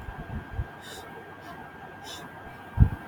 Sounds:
Sniff